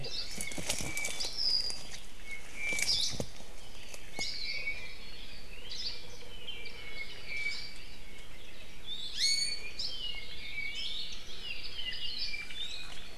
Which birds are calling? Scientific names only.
Loxops mana, Himatione sanguinea, Loxops coccineus, Drepanis coccinea